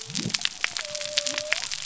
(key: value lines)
label: biophony
recorder: SoundTrap 300